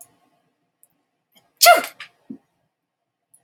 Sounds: Sneeze